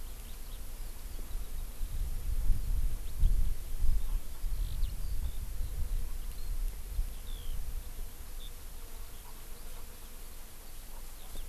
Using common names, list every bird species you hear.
Eurasian Skylark